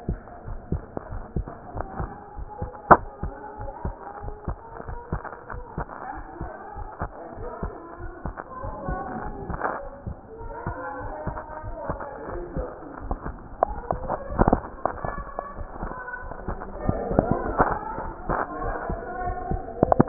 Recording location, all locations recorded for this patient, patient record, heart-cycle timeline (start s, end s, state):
pulmonary valve (PV)
aortic valve (AV)+pulmonary valve (PV)+tricuspid valve (TV)+mitral valve (MV)
#Age: Child
#Sex: Female
#Height: 127.0 cm
#Weight: 22.2 kg
#Pregnancy status: False
#Murmur: Absent
#Murmur locations: nan
#Most audible location: nan
#Systolic murmur timing: nan
#Systolic murmur shape: nan
#Systolic murmur grading: nan
#Systolic murmur pitch: nan
#Systolic murmur quality: nan
#Diastolic murmur timing: nan
#Diastolic murmur shape: nan
#Diastolic murmur grading: nan
#Diastolic murmur pitch: nan
#Diastolic murmur quality: nan
#Outcome: Abnormal
#Campaign: 2015 screening campaign
0.00	0.18	unannotated
0.18	0.46	diastole
0.46	0.58	S1
0.58	0.70	systole
0.70	0.84	S2
0.84	1.10	diastole
1.10	1.24	S1
1.24	1.32	systole
1.32	1.48	S2
1.48	1.74	diastole
1.74	1.86	S1
1.86	1.96	systole
1.96	2.10	S2
2.10	2.38	diastole
2.38	2.48	S1
2.48	2.60	systole
2.60	2.70	S2
2.70	2.92	diastole
2.92	3.08	S1
3.08	3.22	systole
3.22	3.34	S2
3.34	3.60	diastole
3.60	3.72	S1
3.72	3.84	systole
3.84	3.94	S2
3.94	4.24	diastole
4.24	4.36	S1
4.36	4.44	systole
4.44	4.58	S2
4.58	4.88	diastole
4.88	4.98	S1
4.98	5.08	systole
5.08	5.22	S2
5.22	5.52	diastole
5.52	5.64	S1
5.64	5.74	systole
5.74	5.88	S2
5.88	6.18	diastole
6.18	6.26	S1
6.26	6.40	systole
6.40	6.50	S2
6.50	6.78	diastole
6.78	6.90	S1
6.90	7.02	systole
7.02	7.12	S2
7.12	7.38	diastole
7.38	7.50	S1
7.50	7.64	systole
7.64	7.76	S2
7.76	8.02	diastole
8.02	8.12	S1
8.12	8.24	systole
8.24	8.34	S2
8.34	8.64	diastole
8.64	8.76	S1
8.76	8.84	systole
8.84	9.00	S2
9.00	9.20	diastole
9.20	9.36	S1
9.36	9.48	systole
9.48	9.60	S2
9.60	9.81	diastole
9.81	9.96	S1
9.96	10.06	systole
10.06	10.16	S2
10.16	10.42	diastole
10.42	10.54	S1
10.54	10.68	systole
10.68	10.78	S2
10.78	11.02	diastole
11.02	11.14	S1
11.14	11.28	systole
11.28	11.40	S2
11.40	11.66	diastole
11.66	11.78	S1
11.78	11.90	systole
11.90	12.02	S2
12.02	12.32	diastole
12.32	12.48	S1
12.48	12.56	systole
12.56	12.70	S2
12.70	12.95	diastole
12.95	20.08	unannotated